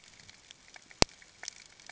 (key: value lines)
label: ambient
recorder: HydroMoth